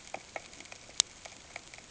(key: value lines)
label: ambient
recorder: HydroMoth